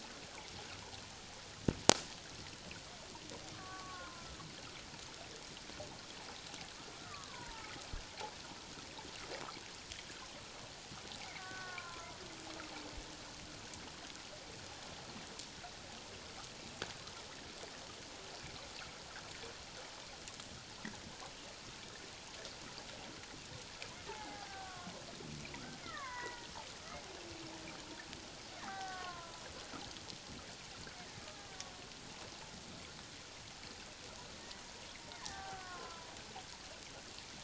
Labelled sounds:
3.5	4.5	killer whale, Bigg's (transient), 0.97 to 1.6 kHz
7.0	7.7	killer whale, Bigg's (transient), 0.81 to 1.7 kHz
11.4	12.2	killer whale, Bigg's (transient), 0.91 to 1.6 kHz
24.1	24.9	killer whale, Bigg's (transient), 0.78 to 2.2 kHz
25.8	26.5	killer whale, Bigg's (transient), 0.91 to 2.2 kHz
28.6	29.4	killer whale, Bigg's (transient), 0.78 to 2.0 kHz
31.2	31.5	killer whale, Bigg's (transient), 1.2 to 1.4 kHz
35.2	36.1	killer whale, Bigg's (transient), 0.78 to 1.9 kHz

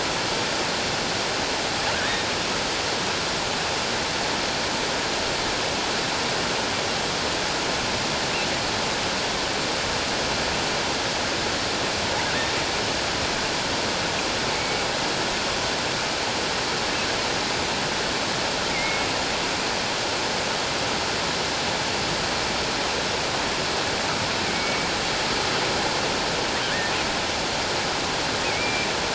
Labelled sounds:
1.9	2.3	killer whale, offshore, 1.5 to 1.9 kHz
14.5	14.8	killer whale, offshore, 2.2 to 2.3 kHz
18.7	19.1	killer whale, offshore, 2.0 to 2.3 kHz
24.4	24.9	killer whale, offshore, 2.1 to 2.5 kHz
28.4	28.9	killer whale, offshore, 2.1 to 2.6 kHz

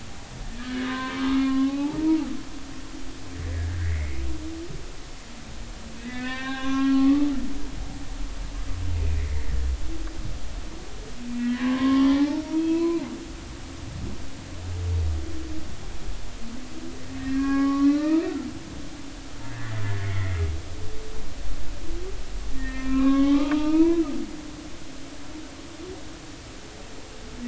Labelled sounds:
0.6	2.3	humpback whale, 0.80 to 4.0 kHz
3.8	4.2	humpback whale, 1.4 to 2.3 kHz
6.0	7.3	humpback whale, 0.80 to 3.8 kHz
9.0	9.2	humpback whale, 2.3 to 2.6 kHz
11.4	13.1	humpback whale, 0.80 to 5.8 kHz
17.3	18.2	humpback whale, 0.80 to 2.7 kHz
20.0	20.4	humpback whale, 1.8 to 2.2 kHz
22.5	24.0	humpback whale, 0.80 to 3.6 kHz

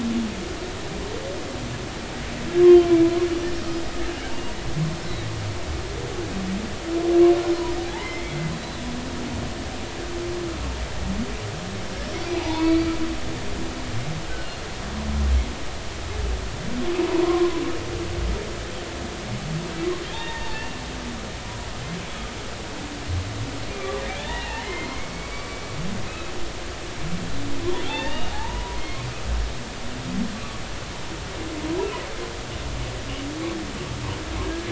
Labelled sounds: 3.6	3.8	humpback whale, 4.9 to 5.1 kHz
7.8	8.4	humpback whale, 0.80 to 2.3 kHz
12.4	12.9	humpback whale, 0.80 to 2.4 kHz
14.4	14.6	humpback whale, 4.2 to 4.3 kHz
17.2	17.5	humpback whale, 0.93 to 1.2 kHz
20.1	20.8	humpback whale, 0.80 to 3.7 kHz
23.8	26.3	humpback whale, 0.80 to 3.6 kHz
27.8	29.0	humpback whale, 0.80 to 3.8 kHz
34.4	34.7	humpback whale, 1.6 to 1.7 kHz

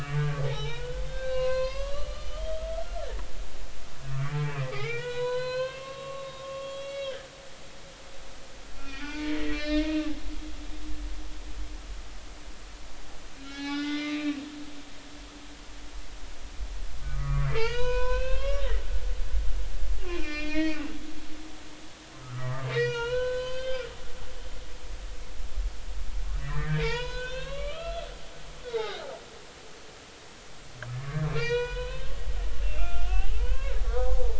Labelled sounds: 0.0	3.1	humpback whale, 0.80 to 6.1 kHz
4.1	7.3	humpback whale, 0.90 to 5.6 kHz
8.8	10.0	humpback whale, 0.83 to 5.5 kHz
13.4	14.4	humpback whale, 0.80 to 5.7 kHz
17.0	18.6	humpback whale, 0.83 to 6.5 kHz
20.1	20.8	humpback whale, 0.86 to 5.9 kHz
22.2	23.8	humpback whale, 0.86 to 6.3 kHz
26.4	28.1	humpback whale, 0.86 to 6.3 kHz
28.6	29.0	humpback whale, 0.80 to 4.0 kHz
31.3	32.1	humpback whale, 0.86 to 5.9 kHz
32.6	34.3	humpback whale, 0.80 to 3.6 kHz

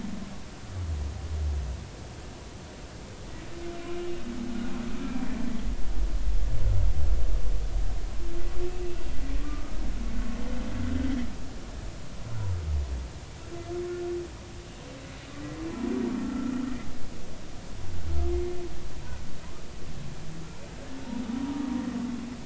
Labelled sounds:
3.9	5.3	humpback whale, 2.3 to 2.9 kHz
9.4	9.7	humpback whale, 1.1 to 1.3 kHz
16.2	16.6	humpback whale, 1.3 to 1.5 kHz
21.5	21.7	humpback whale, 1.1 to 1.3 kHz

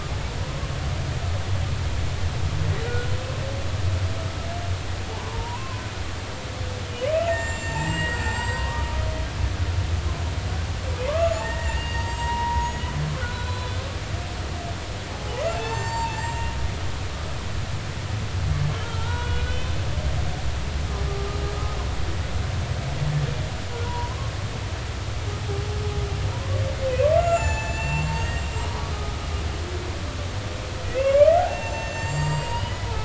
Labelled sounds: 2.8	3.1	humpback whale, 1.4 to 1.5 kHz
5.2	5.8	humpback whale, 0.86 to 1.2 kHz
7.3	8.9	humpback whale, 0.80 to 7.6 kHz
11.1	12.9	humpback whale, 0.83 to 7.6 kHz
13.2	13.8	humpback whale, 1.4 to 4.1 kHz
15.1	16.5	humpback whale, 0.80 to 7.5 kHz
18.8	19.8	humpback whale, 1.3 to 3.6 kHz
23.8	24.2	humpback whale, 0.90 to 1.1 kHz
26.3	29.2	humpback whale, 0.83 to 7.6 kHz
30.9	33.0	humpback whale, 0.83 to 7.6 kHz

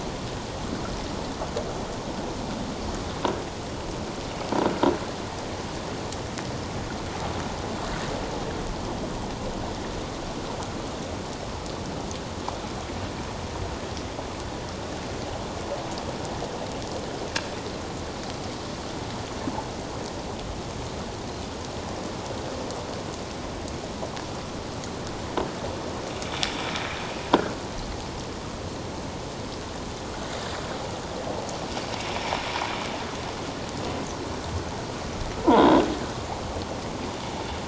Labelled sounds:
35.4	35.8	croaking sound likely from a nearby submerged object, 0.81 to 3.6 kHz

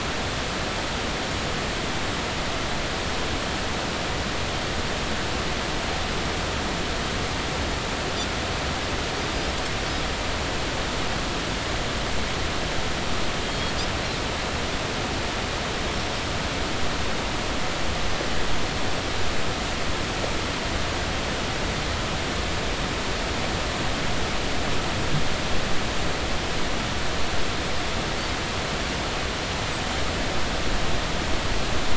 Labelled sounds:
13.5	13.7	Pacific white-sided dolphin, 3.2 to 3.4 kHz

